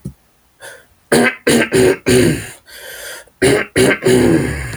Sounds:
Throat clearing